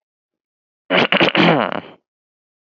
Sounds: Throat clearing